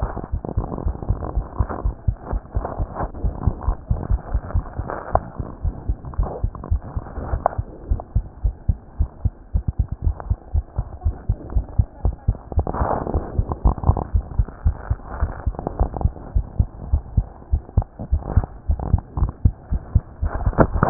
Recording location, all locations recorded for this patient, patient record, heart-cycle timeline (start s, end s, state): aortic valve (AV)
aortic valve (AV)+pulmonary valve (PV)+tricuspid valve (TV)+mitral valve (MV)
#Age: Child
#Sex: Female
#Height: 100.0 cm
#Weight: 11.5 kg
#Pregnancy status: False
#Murmur: Absent
#Murmur locations: nan
#Most audible location: nan
#Systolic murmur timing: nan
#Systolic murmur shape: nan
#Systolic murmur grading: nan
#Systolic murmur pitch: nan
#Systolic murmur quality: nan
#Diastolic murmur timing: nan
#Diastolic murmur shape: nan
#Diastolic murmur grading: nan
#Diastolic murmur pitch: nan
#Diastolic murmur quality: nan
#Outcome: Normal
#Campaign: 2015 screening campaign
0.00	0.32	unannotated
0.32	0.42	S1
0.42	0.56	systole
0.56	0.68	S2
0.68	0.82	diastole
0.82	0.96	S1
0.96	1.08	systole
1.08	1.20	S2
1.20	1.34	diastole
1.34	1.48	S1
1.48	1.56	systole
1.56	1.68	S2
1.68	1.84	diastole
1.84	1.96	S1
1.96	2.04	systole
2.04	2.16	S2
2.16	2.30	diastole
2.30	2.42	S1
2.42	2.54	systole
2.54	2.64	S2
2.64	2.78	diastole
2.78	2.88	S1
2.88	3.00	systole
3.00	3.10	S2
3.10	3.24	diastole
3.24	3.34	S1
3.34	3.42	systole
3.42	3.52	S2
3.52	3.66	diastole
3.66	3.78	S1
3.78	3.88	systole
3.88	3.98	S2
3.98	4.12	diastole
4.12	4.24	S1
4.24	4.32	systole
4.32	4.42	S2
4.42	4.54	diastole
4.54	4.66	S1
4.66	4.78	systole
4.78	4.90	S2
4.90	5.12	diastole
5.12	5.24	S1
5.24	5.38	systole
5.38	5.46	S2
5.46	5.64	diastole
5.64	5.74	S1
5.74	5.86	systole
5.86	5.98	S2
5.98	6.16	diastole
6.16	6.30	S1
6.30	6.40	systole
6.40	6.52	S2
6.52	6.70	diastole
6.70	6.82	S1
6.82	6.94	systole
6.94	7.04	S2
7.04	7.26	diastole
7.26	7.40	S1
7.40	7.54	systole
7.54	7.68	S2
7.68	7.88	diastole
7.88	8.02	S1
8.02	8.14	systole
8.14	8.26	S2
8.26	8.42	diastole
8.42	8.54	S1
8.54	8.68	systole
8.68	8.78	S2
8.78	8.96	diastole
8.96	9.08	S1
9.08	9.24	systole
9.24	9.34	S2
9.34	9.54	diastole
9.54	9.64	S1
9.64	9.78	systole
9.78	9.88	S2
9.88	10.04	diastole
10.04	10.18	S1
10.18	10.28	systole
10.28	10.38	S2
10.38	10.54	diastole
10.54	10.66	S1
10.66	10.76	systole
10.76	10.86	S2
10.86	11.04	diastole
11.04	11.16	S1
11.16	11.28	systole
11.28	11.38	S2
11.38	11.54	diastole
11.54	11.64	S1
11.64	11.74	systole
11.74	11.88	S2
11.88	12.03	diastole
12.03	12.16	S1
12.16	12.24	systole
12.24	12.36	S2
12.36	12.56	diastole
12.56	12.68	S1
12.68	12.80	systole
12.80	12.90	S2
12.90	13.06	diastole
13.06	13.22	S1
13.22	13.36	systole
13.36	13.46	S2
13.46	13.60	diastole
13.60	13.76	S1
13.76	13.84	systole
13.84	13.98	S2
13.98	14.14	diastole
14.14	14.26	S1
14.26	14.34	systole
14.34	14.48	S2
14.48	14.64	diastole
14.64	14.78	S1
14.78	14.88	systole
14.88	15.00	S2
15.00	15.20	diastole
15.20	15.34	S1
15.34	15.46	systole
15.46	15.56	S2
15.56	15.76	diastole
15.76	15.90	S1
15.90	16.00	systole
16.00	16.14	S2
16.14	16.34	diastole
16.34	16.48	S1
16.48	16.58	systole
16.58	16.70	S2
16.70	16.88	diastole
16.88	17.02	S1
17.02	17.16	systole
17.16	17.26	S2
17.26	17.48	diastole
17.48	17.62	S1
17.62	17.76	systole
17.76	17.88	S2
17.88	18.08	diastole
18.08	18.22	S1
18.22	18.32	systole
18.32	18.48	S2
18.48	18.68	diastole
18.68	18.79	S1
18.79	20.90	unannotated